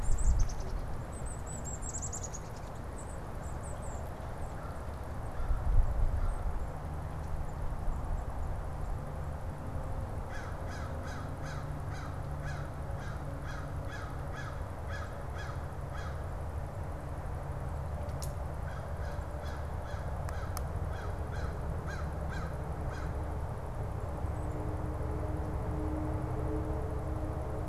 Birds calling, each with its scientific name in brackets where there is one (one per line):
American Crow (Corvus brachyrhynchos)
Golden-crowned Kinglet (Regulus satrapa)